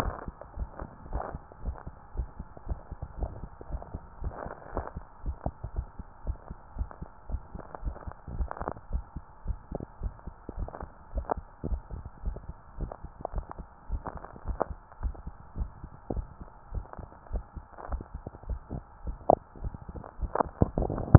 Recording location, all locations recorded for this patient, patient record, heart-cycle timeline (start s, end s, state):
mitral valve (MV)
aortic valve (AV)+pulmonary valve (PV)+tricuspid valve (TV)+mitral valve (MV)
#Age: nan
#Sex: Female
#Height: nan
#Weight: nan
#Pregnancy status: True
#Murmur: Absent
#Murmur locations: nan
#Most audible location: nan
#Systolic murmur timing: nan
#Systolic murmur shape: nan
#Systolic murmur grading: nan
#Systolic murmur pitch: nan
#Systolic murmur quality: nan
#Diastolic murmur timing: nan
#Diastolic murmur shape: nan
#Diastolic murmur grading: nan
#Diastolic murmur pitch: nan
#Diastolic murmur quality: nan
#Outcome: Abnormal
#Campaign: 2015 screening campaign
0.00	0.56	unannotated
0.56	0.70	S1
0.70	0.80	systole
0.80	0.90	S2
0.90	1.10	diastole
1.10	1.24	S1
1.24	1.32	systole
1.32	1.42	S2
1.42	1.62	diastole
1.62	1.76	S1
1.76	1.86	systole
1.86	1.92	S2
1.92	2.14	diastole
2.14	2.28	S1
2.28	2.38	systole
2.38	2.44	S2
2.44	2.66	diastole
2.66	2.80	S1
2.80	2.88	systole
2.88	2.96	S2
2.96	3.18	diastole
3.18	3.32	S1
3.32	3.40	systole
3.40	3.48	S2
3.48	3.70	diastole
3.70	3.82	S1
3.82	3.90	systole
3.90	4.00	S2
4.00	4.20	diastole
4.20	4.34	S1
4.34	4.42	systole
4.42	4.50	S2
4.50	4.74	diastole
4.74	4.86	S1
4.86	4.96	systole
4.96	5.04	S2
5.04	5.26	diastole
5.26	5.38	S1
5.38	5.46	systole
5.46	5.54	S2
5.54	5.74	diastole
5.74	5.88	S1
5.88	5.98	systole
5.98	6.04	S2
6.04	6.26	diastole
6.26	6.38	S1
6.38	6.50	systole
6.50	6.56	S2
6.56	6.76	diastole
6.76	6.90	S1
6.90	7.02	systole
7.02	7.08	S2
7.08	7.30	diastole
7.30	7.44	S1
7.44	7.54	systole
7.54	7.60	S2
7.60	7.82	diastole
7.82	7.96	S1
7.96	8.06	systole
8.06	8.12	S2
8.12	8.32	diastole
8.32	8.50	S1
8.50	8.60	systole
8.60	8.68	S2
8.68	8.90	diastole
8.90	9.04	S1
9.04	9.16	systole
9.16	9.22	S2
9.22	9.46	diastole
9.46	9.60	S1
9.60	9.72	systole
9.72	9.82	S2
9.82	10.02	diastole
10.02	10.16	S1
10.16	10.28	systole
10.28	10.34	S2
10.34	10.56	diastole
10.56	10.70	S1
10.70	10.80	systole
10.80	10.90	S2
10.90	11.14	diastole
11.14	11.28	S1
11.28	11.37	systole
11.37	11.44	S2
11.44	11.68	diastole
11.68	11.84	S1
11.84	11.92	systole
11.92	12.04	S2
12.04	12.24	diastole
12.24	12.38	S1
12.38	12.48	systole
12.48	12.56	S2
12.56	12.78	diastole
12.78	12.90	S1
12.90	13.03	systole
13.03	13.10	S2
13.10	13.34	diastole
13.34	13.48	S1
13.48	13.57	systole
13.57	13.66	S2
13.66	13.90	diastole
13.90	14.04	S1
14.04	14.14	systole
14.14	14.24	S2
14.24	14.46	diastole
14.46	14.60	S1
14.60	14.69	systole
14.69	14.78	S2
14.78	15.02	diastole
15.02	15.14	S1
15.14	15.26	systole
15.26	15.34	S2
15.34	15.58	diastole
15.58	15.72	S1
15.72	15.82	systole
15.82	15.90	S2
15.90	16.14	diastole
16.14	16.26	S1
16.26	16.40	systole
16.40	16.48	S2
16.48	16.74	diastole
16.74	16.88	S1
16.88	17.00	systole
17.00	17.08	S2
17.08	17.32	diastole
17.32	17.46	S1
17.46	17.56	systole
17.56	17.64	S2
17.64	17.90	diastole
17.90	18.02	S1
18.02	18.14	systole
18.14	18.22	S2
18.22	18.48	diastole
18.48	18.60	S1
18.60	18.72	systole
18.72	18.84	S2
18.84	19.06	diastole
19.06	19.16	S1
19.16	21.18	unannotated